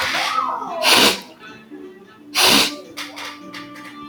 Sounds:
Sniff